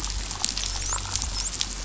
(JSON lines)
{"label": "biophony, dolphin", "recorder": "SoundTrap 500"}